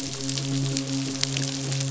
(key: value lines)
label: biophony, midshipman
recorder: SoundTrap 500